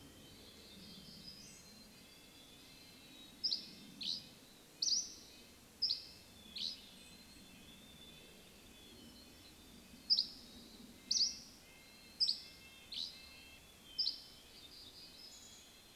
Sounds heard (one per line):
Hermit Thrush song
Dusky Flycatcher song
Dark-eyed Junco call
warbler song
Chestnut-backed Chickadee call
Red-breasted Nuthatch song